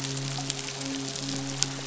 {"label": "biophony, midshipman", "recorder": "SoundTrap 500"}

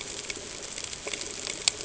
{"label": "ambient", "recorder": "HydroMoth"}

